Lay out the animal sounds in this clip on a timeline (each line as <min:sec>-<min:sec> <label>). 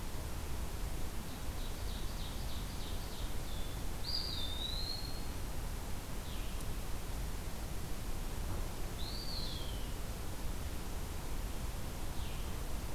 0:01.3-0:03.3 Ovenbird (Seiurus aurocapilla)
0:03.4-0:03.9 Blue-headed Vireo (Vireo solitarius)
0:04.0-0:05.3 Eastern Wood-Pewee (Contopus virens)
0:06.1-0:06.7 Blue-headed Vireo (Vireo solitarius)
0:09.0-0:09.9 Eastern Wood-Pewee (Contopus virens)
0:12.1-0:12.5 Blue-headed Vireo (Vireo solitarius)